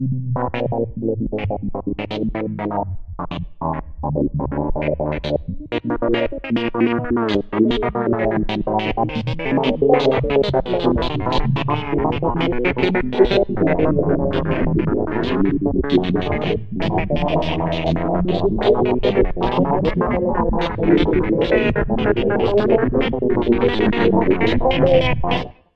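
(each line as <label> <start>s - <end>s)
Digitally manipulated, distorted metallic voices of people speaking. 0.0s - 25.8s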